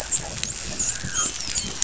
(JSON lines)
{"label": "biophony, dolphin", "recorder": "SoundTrap 500"}